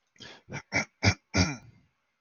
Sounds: Throat clearing